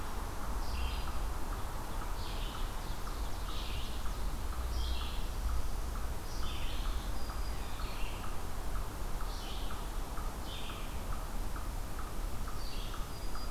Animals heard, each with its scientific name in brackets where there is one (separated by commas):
Ovenbird (Seiurus aurocapilla), Red-eyed Vireo (Vireo olivaceus), Eastern Chipmunk (Tamias striatus), Black-throated Green Warbler (Setophaga virens)